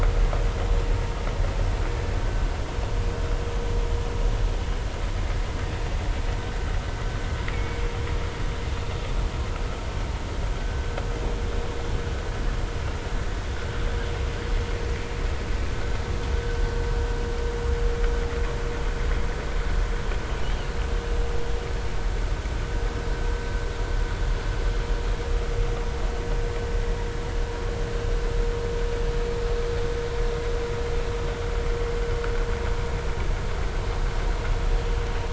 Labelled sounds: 2.2	2.5	vessel noise, 1.4 to 1.6 kHz
7.5	7.8	killer whale, 2.1 to 2.4 kHz
10.6	10.9	vessel noise, 1.5 to 1.6 kHz

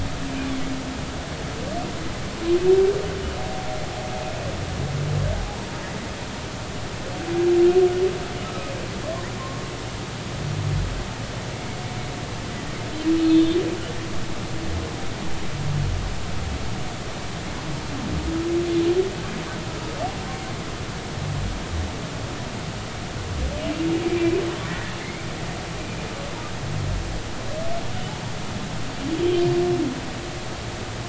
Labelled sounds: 8.5	8.7	humpback whale, 1.2 to 1.3 kHz
13.2	13.6	humpback whale, 3.5 to 3.6 kHz
24.7	25.2	humpback whale, 1.7 to 2.4 kHz
27.9	28.2	humpback whale, 2.9 to 3.0 kHz

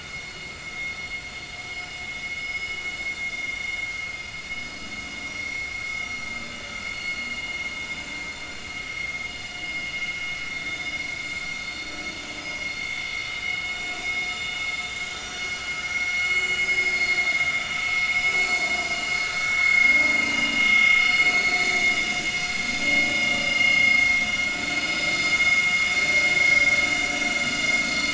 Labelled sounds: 1.7	2.8	vessel noise, 5.0 to 5.2 kHz
6.9	7.2	vessel noise, 4.3 to 4.4 kHz
10.7	11.2	vessel noise, 3.4 to 5.9 kHz
11.6	11.9	vessel noise, 4.3 to 4.4 kHz
13.2	13.5	vessel noise, 3.6 to 3.9 kHz
15.2	16.2	vessel noise, 2.1 to 6.0 kHz
16.6	16.9	vessel noise, 5.0 to 5.2 kHz
18.3	18.6	vessel noise, 4.3 to 4.5 kHz
18.9	20.0	vessel noise, 1.6 to 5.0 kHz
20.3	20.9	vessel noise, 2.8 to 3.4 kHz
24.2	24.8	vessel noise, 2.7 to 2.9 kHz

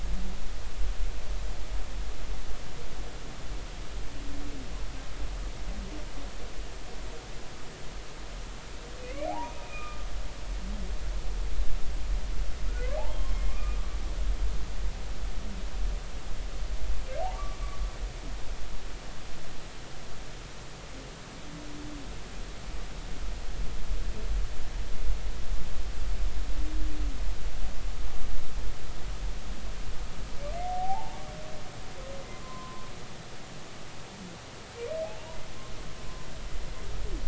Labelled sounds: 9.0	10.0	humpback whale, 0.80 to 2.6 kHz
12.7	13.0	humpback whale, 1.3 to 1.8 kHz
13.5	13.8	humpback whale, 1.1 to 2.5 kHz
17.3	17.6	humpback whale, 1.1 to 1.2 kHz
30.6	31.2	humpback whale, 0.80 to 0.99 kHz
32.4	32.8	humpback whale, 0.96 to 1.1 kHz

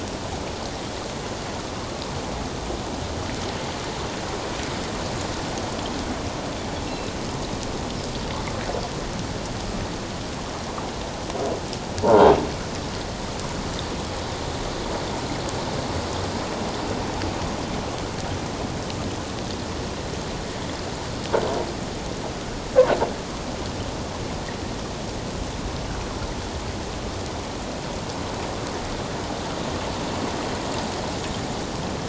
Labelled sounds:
6.9	7.1	Pacific white-sided dolphin, 2.6 to 4.1 kHz
12.0	12.4	croaking sound likely from a nearby submerged object, 0.84 to 1.6 kHz

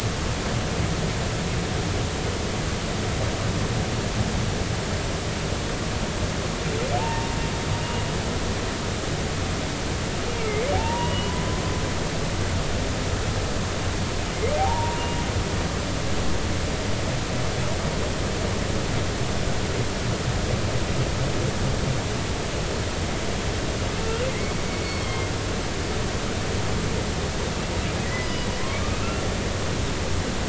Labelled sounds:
7.0	7.4	humpback whale, 0.80 to 0.99 kHz
10.4	11.3	humpback whale, 0.80 to 3.0 kHz
14.6	15.1	humpback whale, 0.80 to 1.0 kHz
24.3	25.3	humpback whale, 1.9 to 4.4 kHz
28.0	28.5	humpback whale, 1.9 to 5.1 kHz

